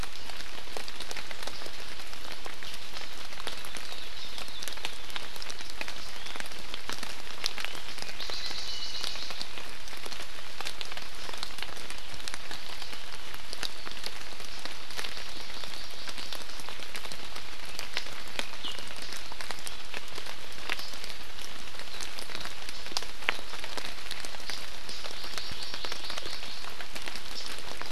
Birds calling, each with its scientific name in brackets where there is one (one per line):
Iiwi (Drepanis coccinea)
Hawaii Akepa (Loxops coccineus)
Hawaii Amakihi (Chlorodrepanis virens)